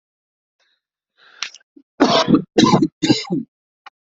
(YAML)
expert_labels:
- quality: poor
  cough_type: wet
  dyspnea: false
  wheezing: false
  stridor: false
  choking: false
  congestion: false
  nothing: true
  diagnosis: lower respiratory tract infection
  severity: mild
age: 24
gender: male
respiratory_condition: false
fever_muscle_pain: false
status: healthy